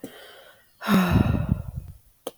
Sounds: Sigh